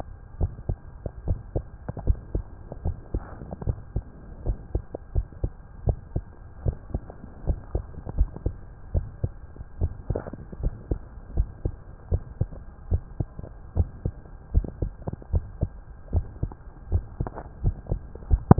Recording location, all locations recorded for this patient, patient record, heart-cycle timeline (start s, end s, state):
tricuspid valve (TV)
aortic valve (AV)+pulmonary valve (PV)+tricuspid valve (TV)+mitral valve (MV)
#Age: Child
#Sex: Male
#Height: 140.0 cm
#Weight: 39.2 kg
#Pregnancy status: False
#Murmur: Absent
#Murmur locations: nan
#Most audible location: nan
#Systolic murmur timing: nan
#Systolic murmur shape: nan
#Systolic murmur grading: nan
#Systolic murmur pitch: nan
#Systolic murmur quality: nan
#Diastolic murmur timing: nan
#Diastolic murmur shape: nan
#Diastolic murmur grading: nan
#Diastolic murmur pitch: nan
#Diastolic murmur quality: nan
#Outcome: Normal
#Campaign: 2015 screening campaign
0.00	0.36	unannotated
0.36	0.50	S1
0.50	0.66	systole
0.66	0.78	S2
0.78	1.24	diastole
1.24	1.40	S1
1.40	1.54	systole
1.54	1.66	S2
1.66	2.02	diastole
2.02	2.20	S1
2.20	2.34	systole
2.34	2.46	S2
2.46	2.84	diastole
2.84	2.96	S1
2.96	3.14	systole
3.14	3.24	S2
3.24	3.66	diastole
3.66	3.78	S1
3.78	3.94	systole
3.94	4.04	S2
4.04	4.44	diastole
4.44	4.58	S1
4.58	4.70	systole
4.70	4.82	S2
4.82	5.14	diastole
5.14	5.26	S1
5.26	5.42	systole
5.42	5.52	S2
5.52	5.84	diastole
5.84	5.98	S1
5.98	6.14	systole
6.14	6.24	S2
6.24	6.64	diastole
6.64	6.78	S1
6.78	6.94	systole
6.94	7.04	S2
7.04	7.44	diastole
7.44	7.60	S1
7.60	7.74	systole
7.74	7.84	S2
7.84	8.16	diastole
8.16	8.30	S1
8.30	8.42	systole
8.42	8.54	S2
8.54	8.92	diastole
8.92	9.08	S1
9.08	9.22	systole
9.22	9.32	S2
9.32	9.78	diastole
9.78	9.92	S1
9.92	10.06	systole
10.06	10.18	S2
10.18	10.60	diastole
10.60	10.74	S1
10.74	10.88	systole
10.88	11.02	S2
11.02	11.34	diastole
11.34	11.50	S1
11.50	11.63	systole
11.63	11.76	S2
11.76	12.08	diastole
12.08	12.24	S1
12.24	12.38	systole
12.38	12.50	S2
12.50	12.88	diastole
12.88	13.02	S1
13.02	13.16	systole
13.16	13.28	S2
13.28	13.73	diastole
13.73	13.90	S1
13.90	14.02	systole
14.02	14.14	S2
14.14	14.50	diastole
14.50	14.66	S1
14.66	14.80	systole
14.80	14.94	S2
14.94	15.30	diastole
15.30	15.46	S1
15.46	15.58	systole
15.58	15.70	S2
15.70	16.12	diastole
16.12	16.28	S1
16.28	16.39	systole
16.39	16.50	S2
16.50	16.89	diastole
16.89	17.06	S1
17.06	17.18	systole
17.18	17.28	S2
17.28	17.62	diastole
17.62	17.76	S1
17.76	17.89	systole
17.89	18.00	S2
18.00	18.26	diastole
18.26	18.42	S1
18.42	18.59	unannotated